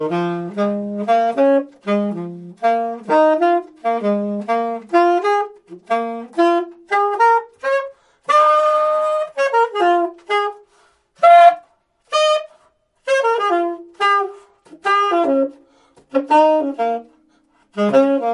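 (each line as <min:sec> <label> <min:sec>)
0:00.0 An improvisational saxophone plays expressive, free-flowing melodies. 0:10.7
0:11.1 A single, sustained tone played smoothly and clearly on the saxophone. 0:12.6
0:13.0 An improvisational saxophone plays expressive, free-flowing melodies. 0:17.0
0:17.7 An improvisational saxophone plays expressive, free-flowing melodies. 0:18.3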